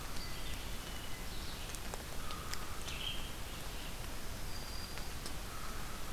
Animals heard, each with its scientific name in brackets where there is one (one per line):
Black-throated Green Warbler (Setophaga virens)
American Crow (Corvus brachyrhynchos)
Red-eyed Vireo (Vireo olivaceus)
Hermit Thrush (Catharus guttatus)